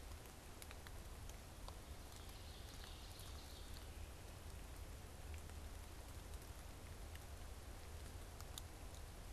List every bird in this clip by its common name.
Common Yellowthroat